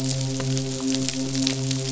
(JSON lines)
{"label": "biophony, midshipman", "recorder": "SoundTrap 500"}